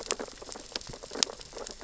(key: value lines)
label: biophony, sea urchins (Echinidae)
recorder: SoundTrap 600 or HydroMoth